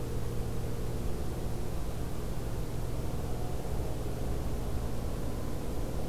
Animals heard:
forest ambience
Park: Acadia National Park